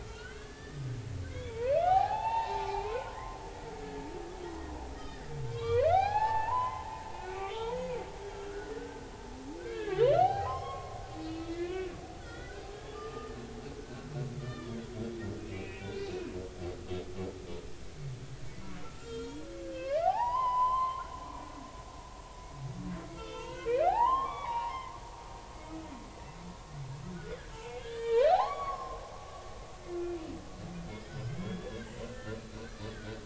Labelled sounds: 0.0	3.4	humpback whale, 0.80 to 4.5 kHz
3.8	4.1	humpback whale, 1.6 to 1.8 kHz
5.1	7.8	humpback whale, 0.80 to 4.4 kHz
8.5	9.1	humpback whale, 1.3 to 1.7 kHz
9.6	11.0	humpback whale, 0.80 to 5.5 kHz
11.2	12.7	humpback whale, 1.3 to 4.3 kHz
12.9	14.1	humpback whale, 1.1 to 1.9 kHz
14.4	14.8	humpback whale, 1.1 to 3.7 kHz
15.4	16.3	humpback whale, 1.4 to 2.7 kHz
18.8	21.1	humpback whale, 0.80 to 7.1 kHz
23.1	24.9	humpback whale, 0.80 to 5.0 kHz
27.1	29.0	humpback whale, 0.80 to 7.0 kHz
30.0	33.2	humpback whale, 0.93 to 4.2 kHz

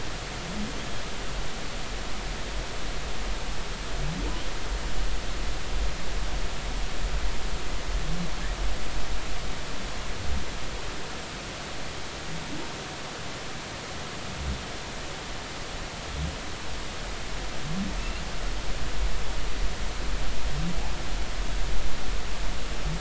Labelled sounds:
18.0	18.2	humpback whale, 2.6 to 2.9 kHz

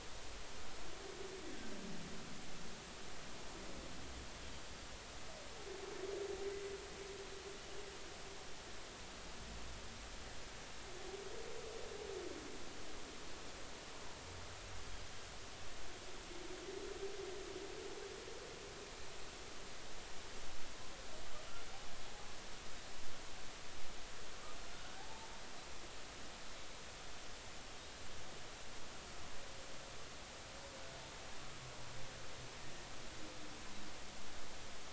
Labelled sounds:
24.7	25.3	humpback whale, 0.80 to 1.7 kHz

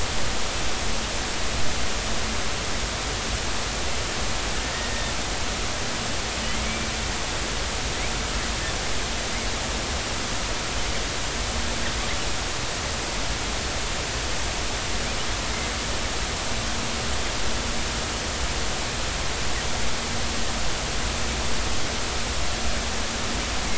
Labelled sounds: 4.7	5.1	killer whale, northern resident, 1.8 to 2.0 kHz
6.5	6.9	killer whale, northern resident, 2.0 to 2.4 kHz

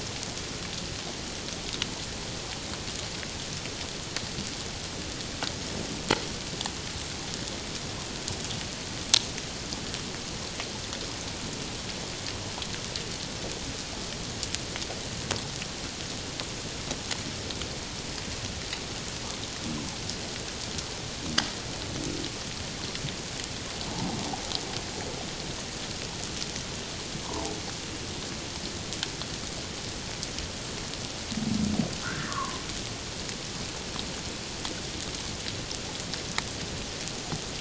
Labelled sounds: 23.9	24.2	humpback whale, 0.78 to 1.0 kHz
27.2	27.5	humpback whale, 0.78 to 1.2 kHz
32.0	32.6	humpback whale, 0.97 to 1.9 kHz

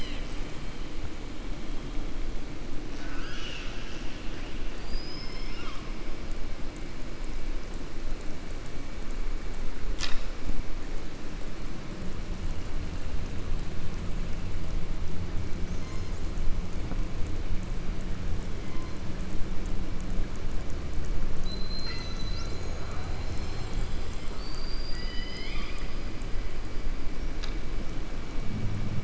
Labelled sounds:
2.9	4.5	killer whale, southern resident, 1.2 to 6.7 kHz
21.3	22.9	killer whale, southern resident, 1.3 to 7.2 kHz

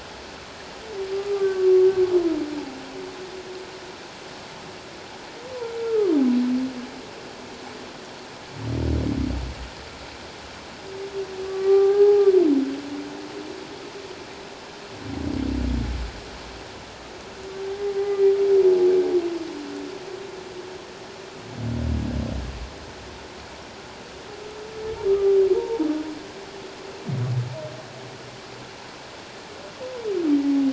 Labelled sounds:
1.1	1.9	humpback whale, 1.1 to 1.6 kHz
5.8	6.1	humpback whale, 1.0 to 1.4 kHz
11.5	12.3	humpback whale, 0.78 to 1.7 kHz
17.9	18.3	humpback whale, 0.78 to 2.1 kHz
25.1	25.9	humpback whale, 0.81 to 1.3 kHz

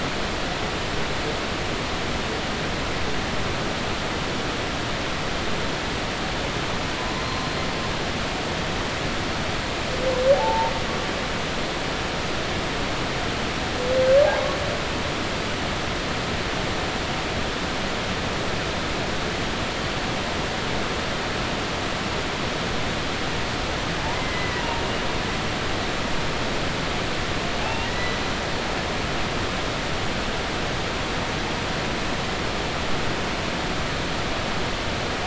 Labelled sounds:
10.3	10.7	humpback whale, 0.80 to 0.96 kHz
24.1	24.8	humpback whale, 0.90 to 2.1 kHz
27.6	28.2	humpback whale, 0.80 to 4.1 kHz

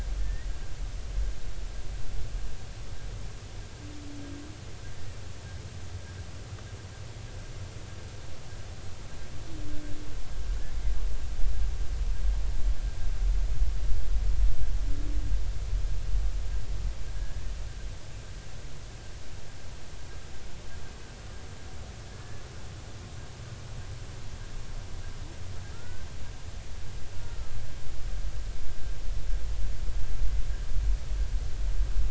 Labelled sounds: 0.2	0.5	humpback whale, 1.7 to 2.0 kHz
17.1	17.4	humpback whale, 1.5 to 1.8 kHz
25.7	26.1	humpback whale, 1.3 to 1.6 kHz
27.2	27.6	humpback whale, 1.2 to 1.4 kHz

